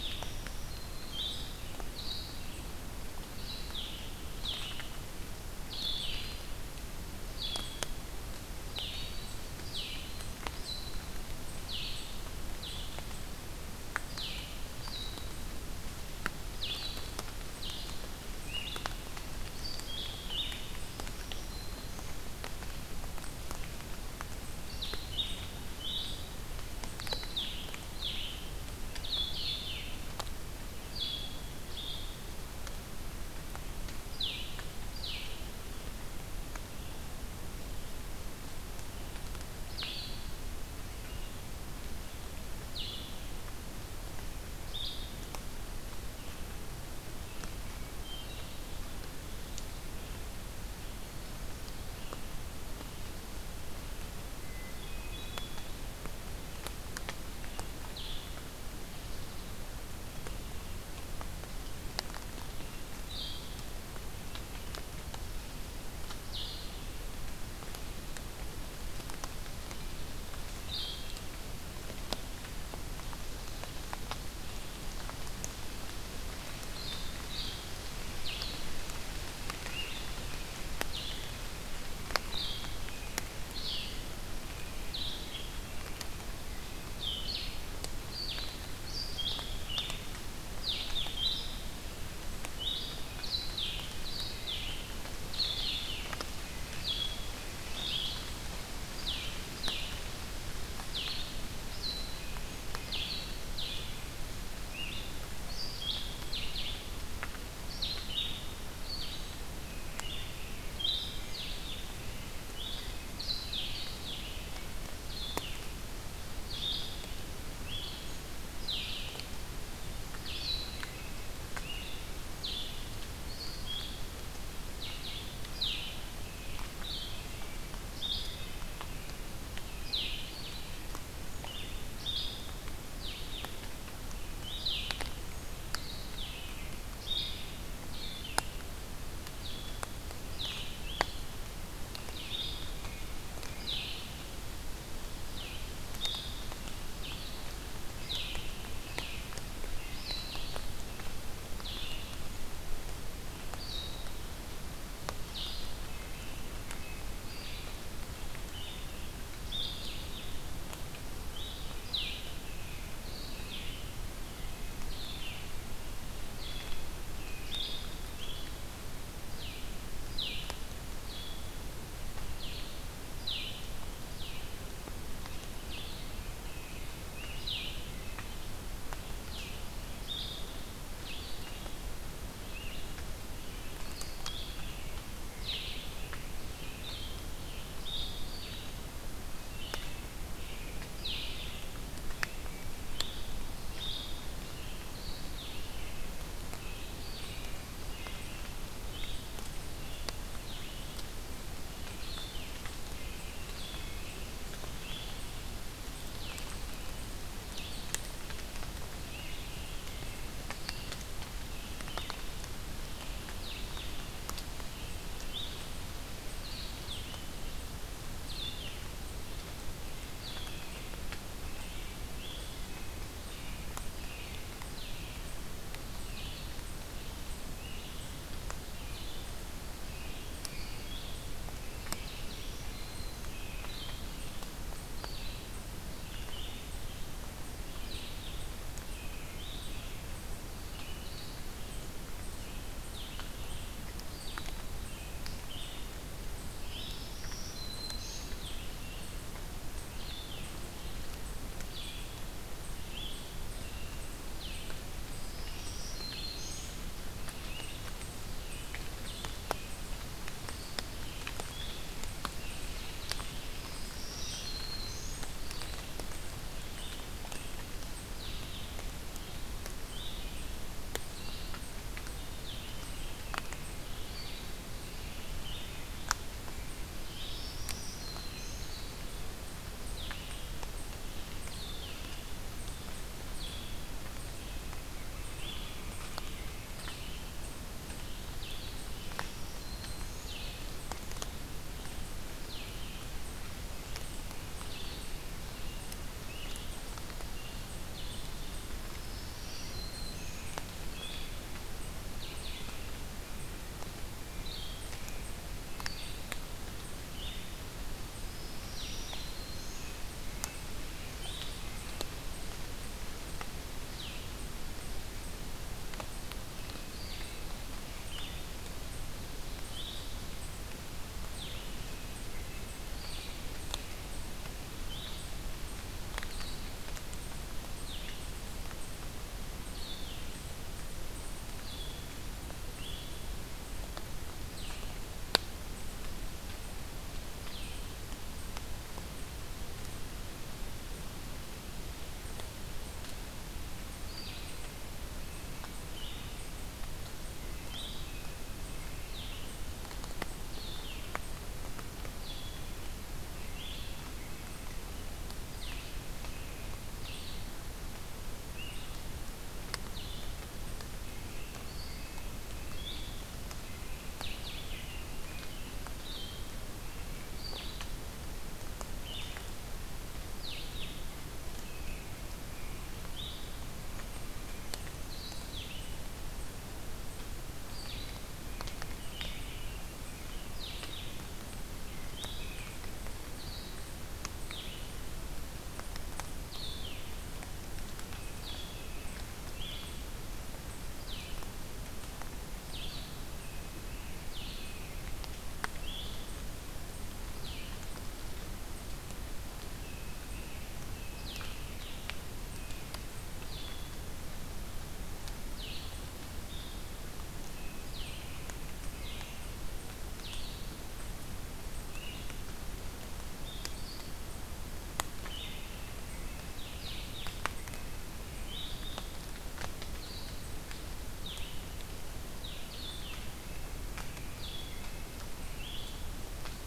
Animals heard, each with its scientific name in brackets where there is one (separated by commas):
Hermit Thrush (Catharus guttatus), American Robin (Turdus migratorius), Blue-headed Vireo (Vireo solitarius), Black-throated Green Warbler (Setophaga virens)